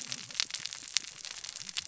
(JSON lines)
{"label": "biophony, cascading saw", "recorder": "SoundTrap 600 or HydroMoth"}